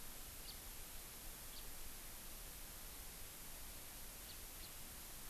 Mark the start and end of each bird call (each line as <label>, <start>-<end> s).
House Finch (Haemorhous mexicanus), 0.4-0.5 s
House Finch (Haemorhous mexicanus), 1.5-1.6 s
House Finch (Haemorhous mexicanus), 4.3-4.4 s